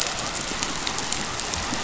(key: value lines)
label: biophony
recorder: SoundTrap 500